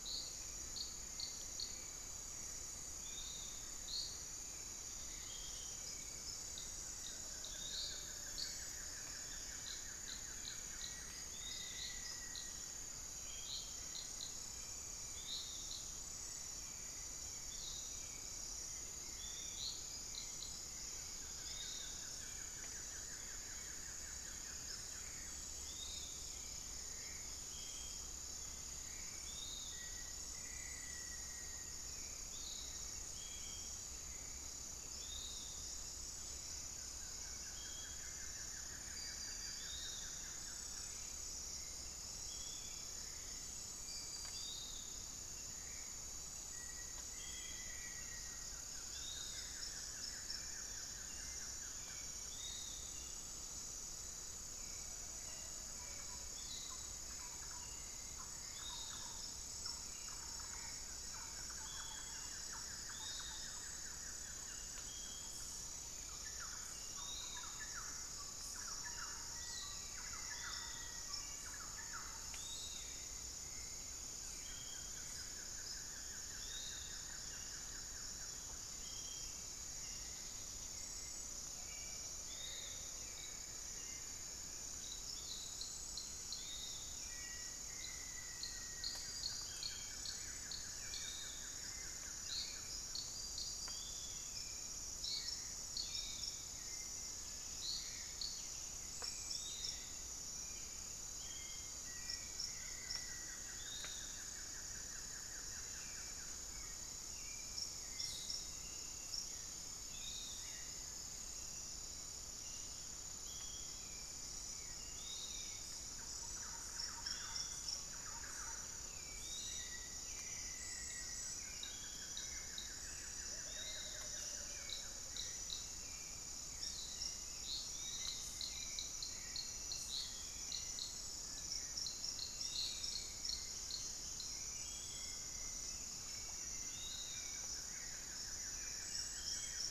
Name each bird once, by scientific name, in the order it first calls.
Turdus hauxwelli, Legatus leucophaius, Xiphorhynchus guttatus, Myrmotherula longipennis, Formicarius analis, Campylorhynchus turdinus, unidentified bird, Momotus momota, Psarocolius angustifrons